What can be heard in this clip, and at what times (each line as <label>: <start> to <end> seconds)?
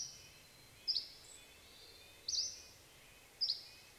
Hermit Thrush call: 0 to 2 seconds
unidentified bird chip note: 0 to 2 seconds
Dusky Flycatcher song: 0 to 4 seconds
Red-breasted Nuthatch song: 0 to 4 seconds
Douglas squirrel rattle: 2 to 4 seconds